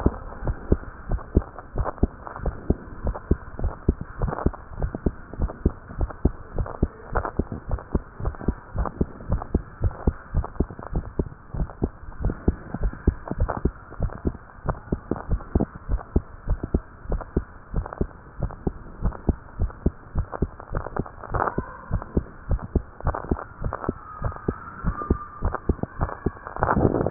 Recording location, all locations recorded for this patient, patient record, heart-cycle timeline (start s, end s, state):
tricuspid valve (TV)
pulmonary valve (PV)+tricuspid valve (TV)+mitral valve (MV)
#Age: Child
#Sex: Male
#Height: 125.0 cm
#Weight: 22.5 kg
#Pregnancy status: False
#Murmur: Absent
#Murmur locations: nan
#Most audible location: nan
#Systolic murmur timing: nan
#Systolic murmur shape: nan
#Systolic murmur grading: nan
#Systolic murmur pitch: nan
#Systolic murmur quality: nan
#Diastolic murmur timing: nan
#Diastolic murmur shape: nan
#Diastolic murmur grading: nan
#Diastolic murmur pitch: nan
#Diastolic murmur quality: nan
#Outcome: Normal
#Campaign: 2015 screening campaign
0.00	0.16	unannotated
0.16	0.18	S2
0.18	0.44	diastole
0.44	0.56	S1
0.56	0.70	systole
0.70	0.82	S2
0.82	1.08	diastole
1.08	1.22	S1
1.22	1.32	systole
1.32	1.48	S2
1.48	1.74	diastole
1.74	1.88	S1
1.88	1.98	systole
1.98	2.14	S2
2.14	2.40	diastole
2.40	2.54	S1
2.54	2.66	systole
2.66	2.78	S2
2.78	3.02	diastole
3.02	3.16	S1
3.16	3.26	systole
3.26	3.40	S2
3.40	3.60	diastole
3.60	3.74	S1
3.74	3.84	systole
3.84	3.96	S2
3.96	4.20	diastole
4.20	4.34	S1
4.34	4.42	systole
4.42	4.54	S2
4.54	4.76	diastole
4.76	4.92	S1
4.92	5.02	systole
5.02	5.14	S2
5.14	5.38	diastole
5.38	5.52	S1
5.52	5.62	systole
5.62	5.74	S2
5.74	5.96	diastole
5.96	6.10	S1
6.10	6.20	systole
6.20	6.34	S2
6.34	6.56	diastole
6.56	6.68	S1
6.68	6.78	systole
6.78	6.90	S2
6.90	7.12	diastole
7.12	7.24	S1
7.24	7.36	systole
7.36	7.46	S2
7.46	7.68	diastole
7.68	7.80	S1
7.80	7.90	systole
7.90	8.02	S2
8.02	8.22	diastole
8.22	8.32	S1
8.32	8.46	systole
8.46	8.56	S2
8.56	8.76	diastole
8.76	8.88	S1
8.88	8.96	systole
8.96	9.08	S2
9.08	9.28	diastole
9.28	27.10	unannotated